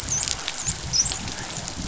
{"label": "biophony, dolphin", "recorder": "SoundTrap 500"}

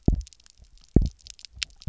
{"label": "biophony, double pulse", "recorder": "SoundTrap 300"}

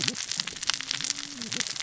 {"label": "biophony, cascading saw", "recorder": "SoundTrap 600 or HydroMoth"}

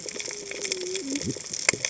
{"label": "biophony, cascading saw", "recorder": "HydroMoth"}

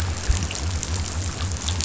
{"label": "biophony", "recorder": "SoundTrap 500"}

